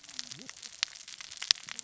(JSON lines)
{"label": "biophony, cascading saw", "recorder": "SoundTrap 600 or HydroMoth"}